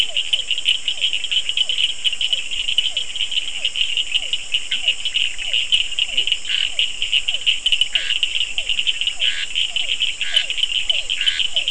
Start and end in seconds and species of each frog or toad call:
0.0	11.7	Physalaemus cuvieri
0.0	11.7	Sphaenorhynchus surdus
4.6	5.6	Boana bischoffi
6.0	6.3	Leptodactylus latrans
6.5	11.7	Scinax perereca

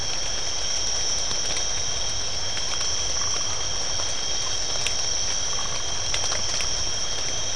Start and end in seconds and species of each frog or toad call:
3.2	3.7	Phyllomedusa distincta
5.4	5.9	Phyllomedusa distincta

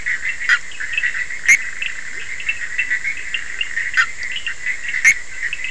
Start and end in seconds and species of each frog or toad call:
0.0	5.7	Boana bischoffi
2.1	2.3	Leptodactylus latrans

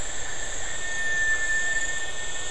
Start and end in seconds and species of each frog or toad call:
none

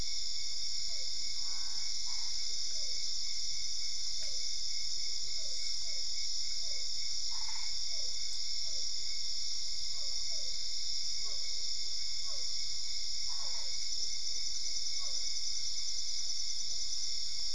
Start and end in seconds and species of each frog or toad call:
0.9	15.3	Physalaemus cuvieri
1.4	2.6	Boana albopunctata
7.2	8.1	Boana albopunctata
13.3	14.0	Boana albopunctata

